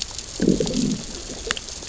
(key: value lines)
label: biophony, growl
recorder: SoundTrap 600 or HydroMoth